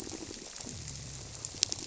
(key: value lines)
label: biophony
recorder: SoundTrap 300